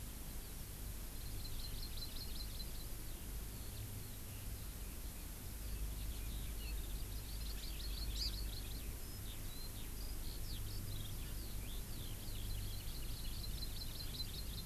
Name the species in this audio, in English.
Hawaii Amakihi, Eurasian Skylark